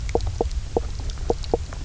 {"label": "biophony, knock croak", "recorder": "SoundTrap 300"}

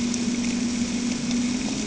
{"label": "anthrophony, boat engine", "recorder": "HydroMoth"}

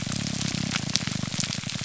{"label": "biophony, grouper groan", "recorder": "SoundTrap 300"}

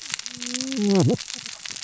{"label": "biophony, cascading saw", "recorder": "SoundTrap 600 or HydroMoth"}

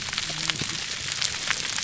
{"label": "biophony, whup", "recorder": "SoundTrap 300"}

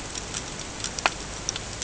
{"label": "ambient", "recorder": "HydroMoth"}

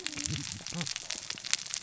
{"label": "biophony, cascading saw", "recorder": "SoundTrap 600 or HydroMoth"}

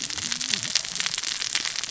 {"label": "biophony, cascading saw", "recorder": "SoundTrap 600 or HydroMoth"}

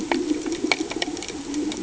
{"label": "anthrophony, boat engine", "recorder": "HydroMoth"}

